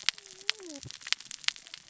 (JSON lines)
{"label": "biophony, cascading saw", "recorder": "SoundTrap 600 or HydroMoth"}